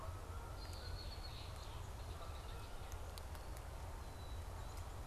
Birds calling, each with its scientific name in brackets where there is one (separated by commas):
Red-winged Blackbird (Agelaius phoeniceus), Canada Goose (Branta canadensis)